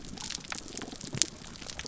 {"label": "biophony, damselfish", "recorder": "SoundTrap 300"}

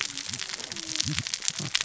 {"label": "biophony, cascading saw", "recorder": "SoundTrap 600 or HydroMoth"}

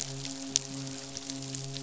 {"label": "biophony, midshipman", "recorder": "SoundTrap 500"}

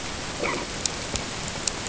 {"label": "ambient", "recorder": "HydroMoth"}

